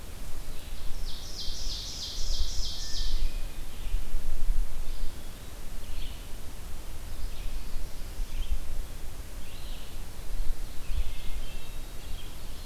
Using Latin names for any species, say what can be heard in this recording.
Vireo olivaceus, Seiurus aurocapilla, Catharus guttatus